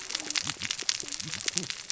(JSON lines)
{"label": "biophony, cascading saw", "recorder": "SoundTrap 600 or HydroMoth"}